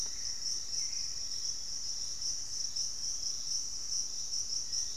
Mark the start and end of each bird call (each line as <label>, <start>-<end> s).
Hauxwell's Thrush (Turdus hauxwelli), 0.0-1.7 s
Thrush-like Wren (Campylorhynchus turdinus), 0.0-1.9 s
unidentified bird, 0.0-2.8 s
Piratic Flycatcher (Legatus leucophaius), 0.0-5.0 s
Black-faced Antthrush (Formicarius analis), 4.3-5.0 s